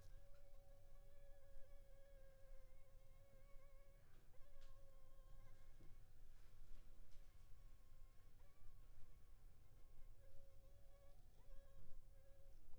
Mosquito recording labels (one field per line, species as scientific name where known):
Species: Anopheles funestus s.s.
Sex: female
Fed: unfed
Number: one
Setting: cup